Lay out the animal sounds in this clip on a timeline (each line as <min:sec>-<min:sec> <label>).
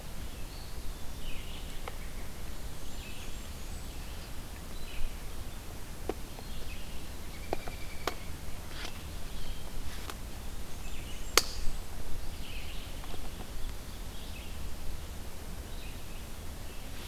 0:00.0-0:17.1 Red-eyed Vireo (Vireo olivaceus)
0:00.4-0:01.8 Eastern Wood-Pewee (Contopus virens)
0:01.5-0:02.8 American Robin (Turdus migratorius)
0:02.4-0:04.0 Blackburnian Warbler (Setophaga fusca)
0:07.2-0:08.4 American Robin (Turdus migratorius)
0:10.4-0:11.9 Blackburnian Warbler (Setophaga fusca)